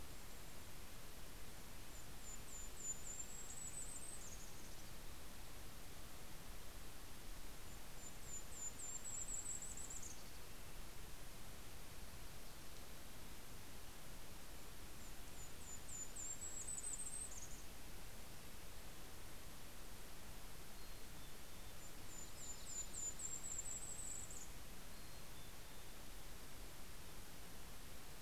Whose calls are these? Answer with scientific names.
Regulus satrapa, Poecile gambeli, Setophaga coronata